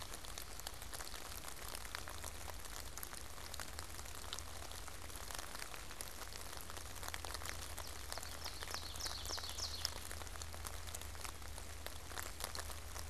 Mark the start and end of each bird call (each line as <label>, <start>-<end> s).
Ovenbird (Seiurus aurocapilla), 7.9-10.4 s